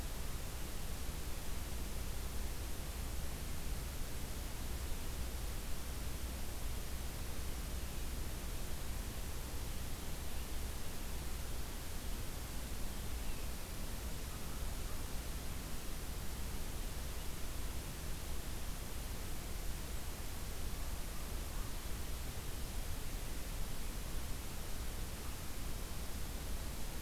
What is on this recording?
American Crow